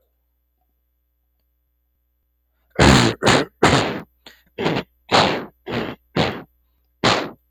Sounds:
Throat clearing